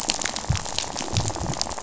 {"label": "biophony, rattle", "recorder": "SoundTrap 500"}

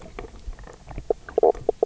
{"label": "biophony, knock croak", "recorder": "SoundTrap 300"}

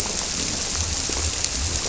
{"label": "biophony", "recorder": "SoundTrap 300"}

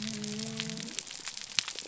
{"label": "biophony", "recorder": "SoundTrap 300"}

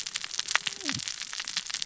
{"label": "biophony, cascading saw", "recorder": "SoundTrap 600 or HydroMoth"}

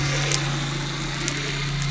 {"label": "anthrophony, boat engine", "recorder": "SoundTrap 300"}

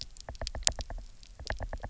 {"label": "biophony, knock", "recorder": "SoundTrap 300"}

